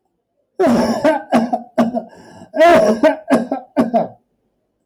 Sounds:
Cough